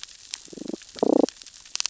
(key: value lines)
label: biophony, damselfish
recorder: SoundTrap 600 or HydroMoth